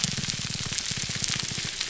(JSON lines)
{"label": "biophony, grouper groan", "recorder": "SoundTrap 300"}